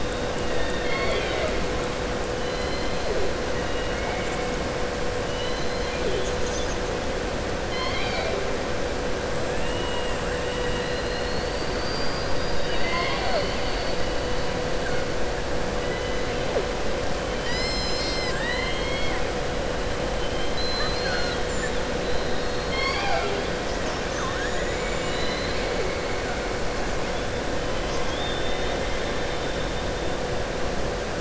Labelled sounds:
0.4	1.6	killer whale, southern resident, 0.46 to 4.6 kHz
3.6	4.3	killer whale, southern resident, 1.4 to 3.9 kHz
5.2	6.3	killer whale, southern resident, 2.0 to 4.2 kHz
9.5	10.1	killer whale, southern resident, 1.8 to 3.9 kHz
20.2	21.4	killer whale, southern resident, 1.2 to 5.0 kHz
27.7	29.0	killer whale, southern resident, 2.1 to 6.6 kHz

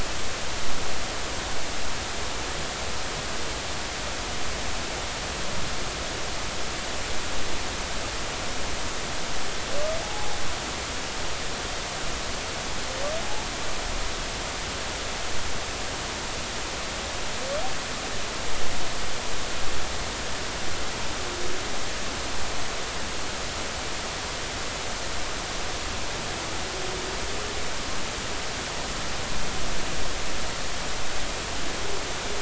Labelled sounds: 10.0	10.4	humpback whale, 0.80 to 0.93 kHz

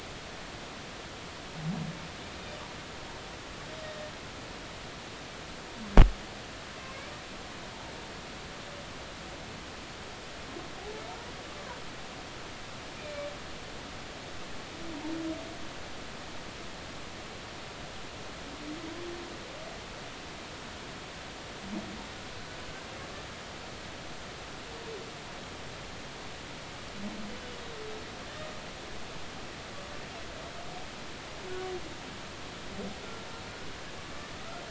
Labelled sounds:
10.8	11.0	humpback whale, 0.80 to 0.93 kHz
12.9	13.3	humpback whale, 2.2 to 2.5 kHz

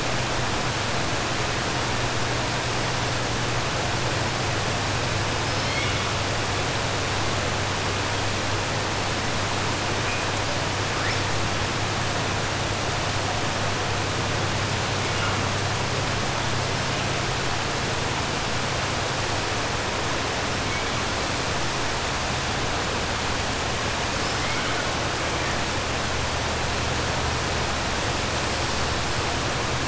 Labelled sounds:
5.4	6.0	killer whale, 2.0 to 5.4 kHz

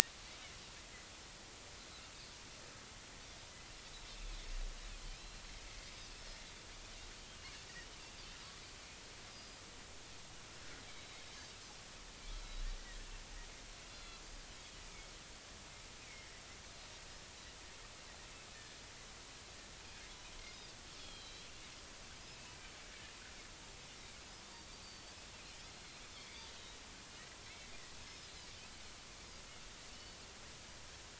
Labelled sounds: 5.1	5.4	Pacific white-sided dolphin, 2.4 to 4.2 kHz
9.3	9.6	Pacific white-sided dolphin, 4.8 to 5.1 kHz
10.9	11.2	Pacific white-sided dolphin, 3.7 to 4.0 kHz
12.4	13.1	Pacific white-sided dolphin, 1.7 to 4.1 kHz
13.9	14.2	Pacific white-sided dolphin, 3.3 to 4.2 kHz
16.1	16.4	Pacific white-sided dolphin, 1.8 to 2.4 kHz
21.0	22.6	Pacific white-sided dolphin, 2.5 to 4.1 kHz
24.7	26.8	Pacific white-sided dolphin, 2.2 to 4.8 kHz
28.1	28.3	Pacific white-sided dolphin, 5.0 to 5.4 kHz
29.9	30.2	Pacific white-sided dolphin, 2.8 to 3.0 kHz

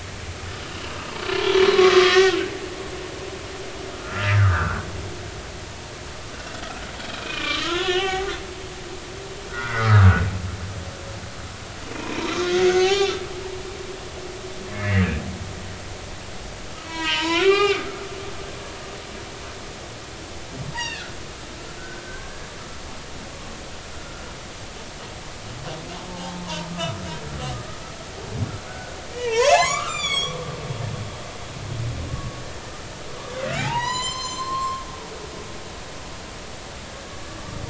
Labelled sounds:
0.7	0.9	humpback whale, 2.7 to 3.0 kHz
1.4	2.4	humpback whale, 1.1 to 3.5 kHz
3.9	4.9	humpback whale, 1.1 to 1.8 kHz
7.2	8.4	humpback whale, 0.80 to 3.6 kHz
9.5	10.2	humpback whale, 1.1 to 2.1 kHz
11.9	12.3	humpback whale, 0.90 to 2.6 kHz
12.6	13.6	humpback whale, 0.80 to 4.5 kHz
14.7	15.1	humpback whale, 1.6 to 2.2 kHz
16.8	17.9	humpback whale, 0.80 to 5.5 kHz
20.7	21.1	humpback whale, 1.6 to 4.9 kHz
21.8	22.4	humpback whale, 1.4 to 1.7 kHz
23.9	24.2	humpback whale, 1.3 to 1.5 kHz
26.1	26.7	humpback whale, 0.80 to 1.1 kHz
28.7	30.4	humpback whale, 0.80 to 8.0 kHz
33.6	34.8	humpback whale, 0.80 to 8.0 kHz

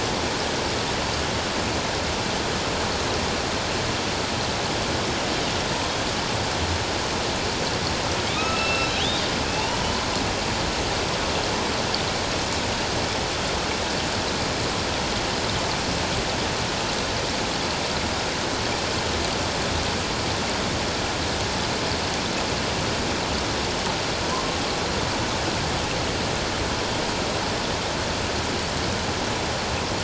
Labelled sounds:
8.4	9.1	killer whale, northern resident, A clan, AB subclan, 2.4 to 5.4 kHz
24.3	24.6	killer whale, northern resident, A clan, AB subclan, 0.97 to 1.1 kHz

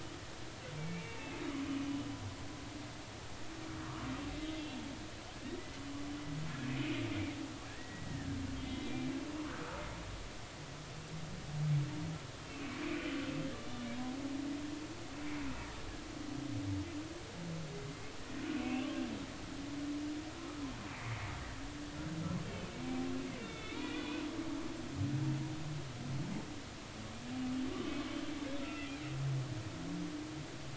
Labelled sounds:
0.8	1.4	humpback whale, 2.1 to 2.7 kHz
6.7	9.0	humpback whale, 1.6 to 3.9 kHz
12.5	13.1	humpback whale, 2.2 to 2.8 kHz
13.6	13.9	humpback whale, 3.5 to 3.6 kHz
18.5	18.9	humpback whale, 2.4 to 3.0 kHz
20.9	21.2	humpback whale, 2.1 to 2.5 kHz
22.5	24.2	humpback whale, 2.1 to 3.8 kHz

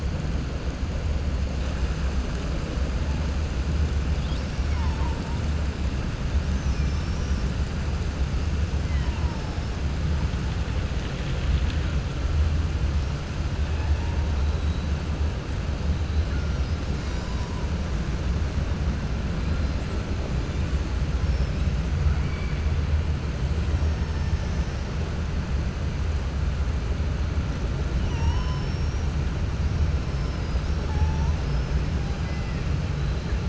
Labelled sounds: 22.0	22.6	killer whale, 1.3 to 2.4 kHz
28.0	29.1	killer whale, 5.3 to 7.5 kHz
30.0	31.8	killer whale, 4.8 to 6.2 kHz
32.2	32.6	killer whale, 1.6 to 2.8 kHz

